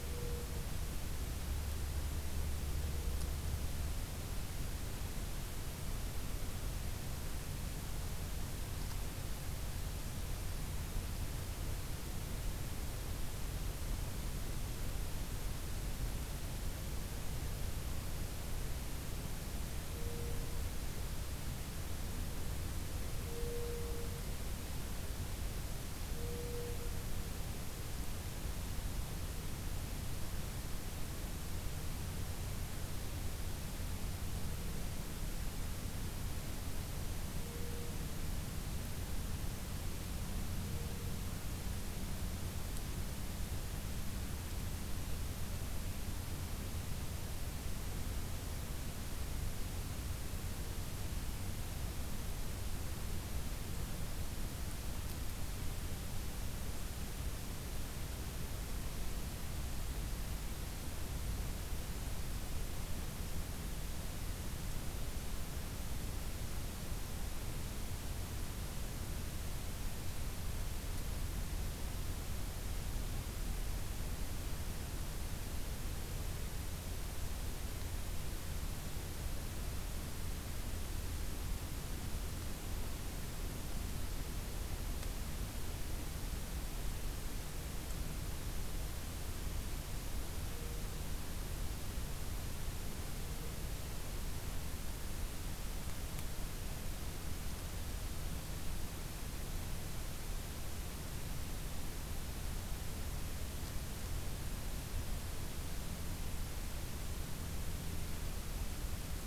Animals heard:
forest ambience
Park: Acadia National Park